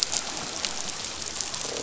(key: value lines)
label: biophony, croak
recorder: SoundTrap 500